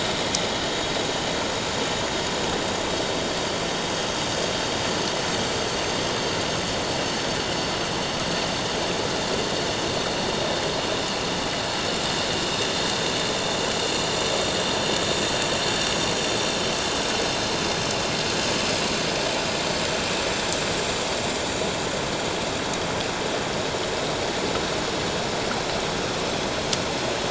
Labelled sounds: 15.6	16.2	vessel noise, 4.4 to 7.9 kHz

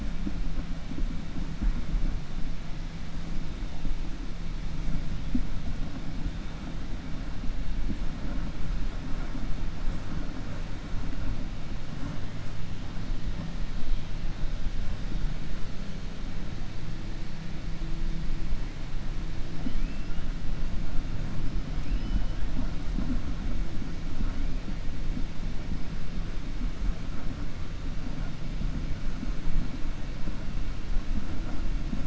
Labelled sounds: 19.6	20.2	killer whale, 2.0 to 3.9 kHz
21.7	22.4	killer whale, 2.0 to 3.1 kHz

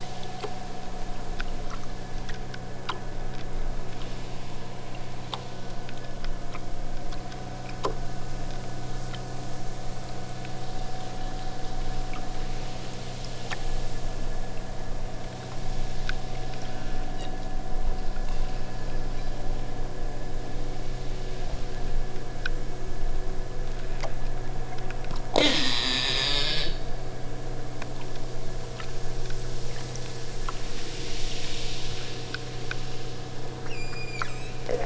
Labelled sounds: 25.2	26.8	killer whale, southern Alaska resident, 0 to 8.0 kHz
33.5	34.7	killer whale, southern Alaska resident, 0.74 to 8.0 kHz

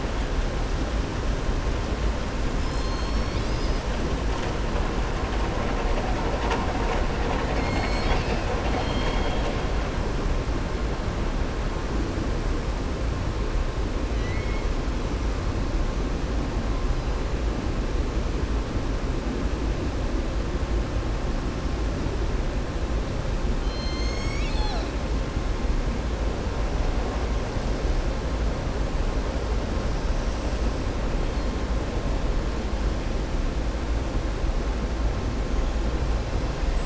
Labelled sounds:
7.2	9.5	killer whale, southern resident, 0.64 to 7.8 kHz
14.1	14.7	killer whale, southern resident, 1.9 to 4.8 kHz
23.5	24.9	killer whale, southern resident, 0.77 to 7.8 kHz

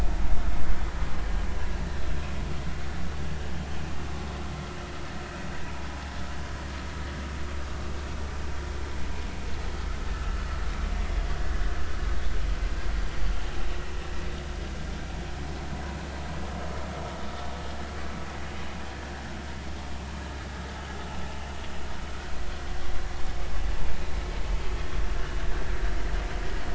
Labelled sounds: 0.2	0.5	vessel noise, 2.1 to 2.2 kHz

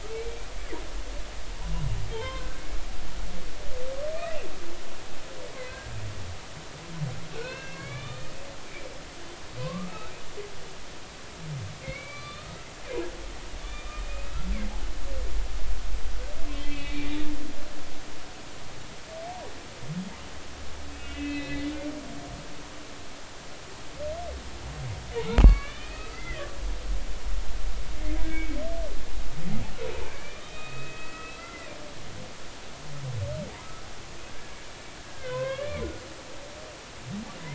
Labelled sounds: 0.1	0.5	humpback whale, 2.2 to 2.4 kHz
2.1	2.5	humpback whale, 0.83 to 3.3 kHz
4.1	4.5	humpback whale, 2.3 to 2.8 kHz
5.5	5.8	humpback whale, 2.0 to 2.3 kHz
7.4	8.3	humpback whale, 1.1 to 3.7 kHz
9.6	10.1	humpback whale, 0.96 to 1.5 kHz
11.8	12.6	humpback whale, 1.1 to 4.7 kHz
13.6	14.5	humpback whale, 1.2 to 3.6 kHz
16.4	17.3	humpback whale, 1.9 to 3.9 kHz
20.9	21.7	humpback whale, 1.9 to 4.1 kHz
25.4	26.4	humpback whale, 1.1 to 4.5 kHz
28.3	28.6	humpback whale, 2.2 to 2.3 kHz
30.0	31.7	humpback whale, 1.2 to 3.8 kHz
34.3	34.6	humpback whale, 1.5 to 1.8 kHz
35.0	35.8	humpback whale, 0.96 to 2.2 kHz

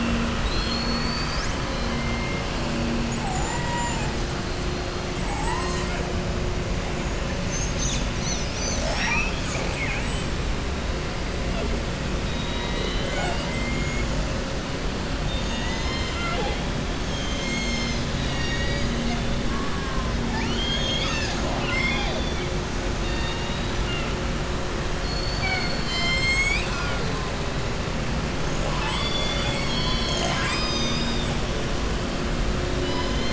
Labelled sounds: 0.3	1.5	killer whale, southern resident, 3.0 to 7.2 kHz
3.0	4.1	killer whale, southern resident, 6.5 to 8.0 kHz
5.1	5.9	killer whale, southern resident, 6.3 to 8.0 kHz
12.2	14.1	killer whale, southern resident, 0.60 to 7.9 kHz
15.2	16.6	killer whale, southern resident, 0.49 to 7.2 kHz
18.1	19.2	killer whale, southern resident, 1.9 to 6.8 kHz
20.2	22.4	killer whale, southern resident, 0.65 to 7.3 kHz
23.0	23.7	killer whale, southern resident, 0.92 to 4.8 kHz
24.9	27.0	killer whale, southern resident, 0.77 to 7.8 kHz

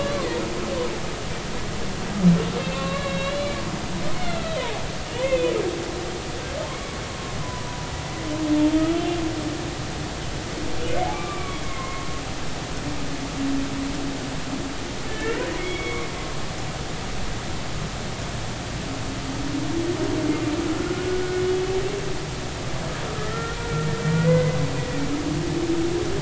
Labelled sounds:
2.6	3.6	humpback whale, 1.0 to 4.1 kHz
4.1	5.5	humpback whale, 0.80 to 4.4 kHz
7.4	7.9	humpback whale, 0.93 to 1.1 kHz
10.9	12.1	humpback whale, 0.99 to 2.4 kHz
15.1	16.0	humpback whale, 1.7 to 3.4 kHz
23.1	25.0	humpback whale, 0.93 to 2.1 kHz

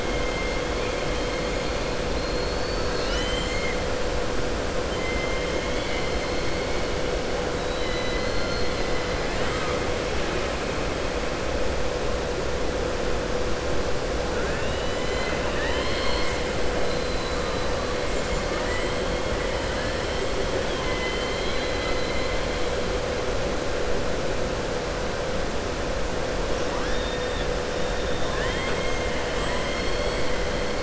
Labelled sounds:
4.9	5.5	killer whale, southern resident, 1.9 to 3.1 kHz
7.6	9.1	killer whale, southern resident, 2.0 to 5.1 kHz
9.4	10.1	killer whale, southern resident, 7.2 to 8.0 kHz
16.8	17.4	killer whale, southern resident, 3.7 to 4.7 kHz
18.4	18.9	killer whale, southern resident, 0.93 to 3.0 kHz
20.6	22.3	killer whale, southern resident, 1.3 to 4.3 kHz

